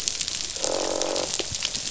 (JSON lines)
{"label": "biophony, croak", "recorder": "SoundTrap 500"}